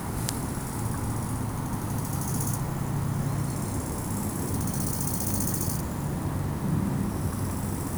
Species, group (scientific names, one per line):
Chorthippus biguttulus
Orthoptera